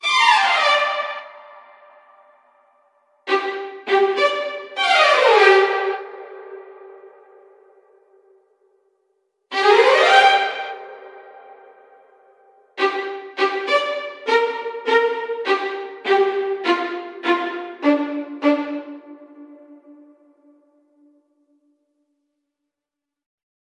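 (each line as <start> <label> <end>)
0.0 A sharp, continuous tone resembling a violin. 1.5
3.2 A sharp, continuous tone resembling a violin. 7.2
9.5 A sharp, continuous tone resembling a violin. 11.7
12.6 A single sustained violin note is played with rhythmic repetition. 19.7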